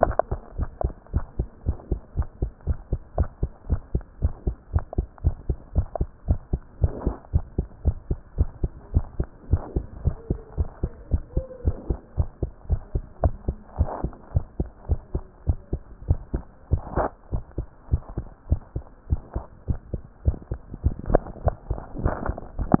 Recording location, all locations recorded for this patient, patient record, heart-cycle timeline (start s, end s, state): tricuspid valve (TV)
aortic valve (AV)+pulmonary valve (PV)+tricuspid valve (TV)+mitral valve (MV)
#Age: Child
#Sex: Male
#Height: 115.0 cm
#Weight: 18.9 kg
#Pregnancy status: False
#Murmur: Absent
#Murmur locations: nan
#Most audible location: nan
#Systolic murmur timing: nan
#Systolic murmur shape: nan
#Systolic murmur grading: nan
#Systolic murmur pitch: nan
#Systolic murmur quality: nan
#Diastolic murmur timing: nan
#Diastolic murmur shape: nan
#Diastolic murmur grading: nan
#Diastolic murmur pitch: nan
#Diastolic murmur quality: nan
#Outcome: Abnormal
#Campaign: 2015 screening campaign
0.00	0.56	unannotated
0.56	0.70	S1
0.70	0.80	systole
0.80	0.94	S2
0.94	1.12	diastole
1.12	1.26	S1
1.26	1.38	systole
1.38	1.48	S2
1.48	1.66	diastole
1.66	1.78	S1
1.78	1.90	systole
1.90	2.02	S2
2.02	2.18	diastole
2.18	2.30	S1
2.30	2.40	systole
2.40	2.52	S2
2.52	2.68	diastole
2.68	2.80	S1
2.80	2.92	systole
2.92	3.02	S2
3.02	3.18	diastole
3.18	3.30	S1
3.30	3.42	systole
3.42	3.50	S2
3.50	3.68	diastole
3.68	3.82	S1
3.82	3.94	systole
3.94	4.04	S2
4.04	4.22	diastole
4.22	4.32	S1
4.32	4.44	systole
4.44	4.56	S2
4.56	4.72	diastole
4.72	4.86	S1
4.86	4.94	systole
4.94	5.06	S2
5.06	5.22	diastole
5.22	5.38	S1
5.38	5.46	systole
5.46	5.58	S2
5.58	5.74	diastole
5.74	5.88	S1
5.88	5.98	systole
5.98	6.08	S2
6.08	6.26	diastole
6.26	6.38	S1
6.38	6.50	systole
6.50	6.60	S2
6.60	6.78	diastole
6.78	6.94	S1
6.94	7.04	systole
7.04	7.14	S2
7.14	7.30	diastole
7.30	7.46	S1
7.46	7.54	systole
7.54	7.66	S2
7.66	7.84	diastole
7.84	7.98	S1
7.98	8.08	systole
8.08	8.18	S2
8.18	8.36	diastole
8.36	8.52	S1
8.52	8.62	systole
8.62	8.74	S2
8.74	8.92	diastole
8.92	9.04	S1
9.04	9.16	systole
9.16	9.28	S2
9.28	9.46	diastole
9.46	9.62	S1
9.62	9.74	systole
9.74	9.84	S2
9.84	10.00	diastole
10.00	10.14	S1
10.14	10.26	systole
10.26	10.38	S2
10.38	10.56	diastole
10.56	10.68	S1
10.68	10.82	systole
10.82	10.92	S2
10.92	11.10	diastole
11.10	11.24	S1
11.24	11.34	systole
11.34	11.44	S2
11.44	11.62	diastole
11.62	11.78	S1
11.78	11.88	systole
11.88	11.98	S2
11.98	12.16	diastole
12.16	12.30	S1
12.30	12.42	systole
12.42	12.52	S2
12.52	12.68	diastole
12.68	12.80	S1
12.80	12.94	systole
12.94	13.06	S2
13.06	13.22	diastole
13.22	13.36	S1
13.36	13.46	systole
13.46	13.58	S2
13.58	13.76	diastole
13.76	13.92	S1
13.92	14.04	systole
14.04	14.14	S2
14.14	14.32	diastole
14.32	14.44	S1
14.44	14.60	systole
14.60	14.70	S2
14.70	14.88	diastole
14.88	15.00	S1
15.00	15.14	systole
15.14	15.26	S2
15.26	15.46	diastole
15.46	15.60	S1
15.60	15.72	systole
15.72	15.82	S2
15.82	16.04	diastole
16.04	16.22	S1
16.22	16.34	systole
16.34	16.46	S2
16.46	16.68	diastole
16.68	16.84	S1
16.84	16.96	systole
16.96	17.10	S2
17.10	17.32	diastole
17.32	17.44	S1
17.44	17.58	systole
17.58	17.68	S2
17.68	17.88	diastole
17.88	18.02	S1
18.02	18.16	systole
18.16	18.28	S2
18.28	18.48	diastole
18.48	18.60	S1
18.60	18.76	systole
18.76	18.86	S2
18.86	19.08	diastole
19.08	19.20	S1
19.20	19.36	systole
19.36	19.46	S2
19.46	19.68	diastole
19.68	19.80	S1
19.80	19.92	systole
19.92	20.04	S2
20.04	20.24	diastole
20.24	20.36	S1
20.36	20.52	systole
20.52	20.60	S2
20.60	20.80	diastole
20.80	20.94	S1
20.94	22.80	unannotated